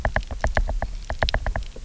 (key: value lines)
label: biophony, knock
recorder: SoundTrap 300